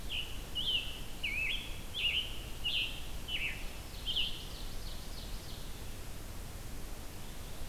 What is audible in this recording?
Scarlet Tanager, Ovenbird